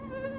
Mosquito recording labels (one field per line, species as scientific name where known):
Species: Anopheles minimus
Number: one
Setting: insect culture